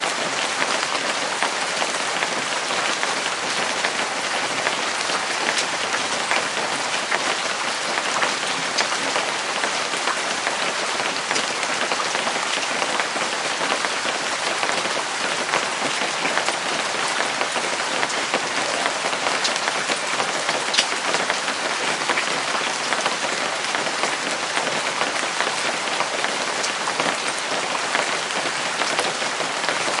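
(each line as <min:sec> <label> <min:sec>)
0:00.0 Heavy rain falling outside. 0:30.0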